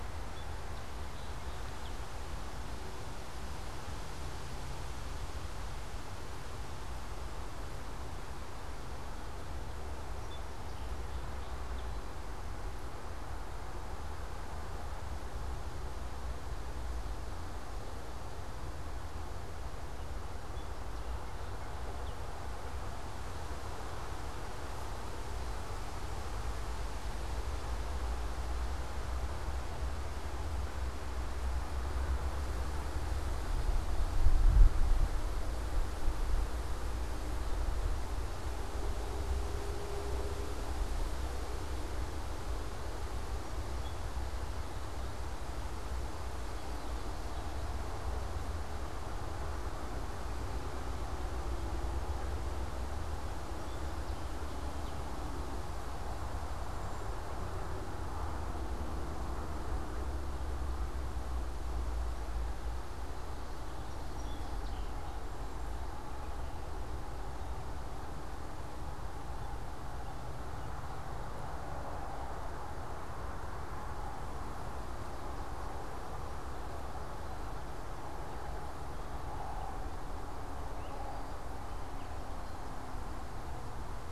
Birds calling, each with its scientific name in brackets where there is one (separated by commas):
unidentified bird, Song Sparrow (Melospiza melodia)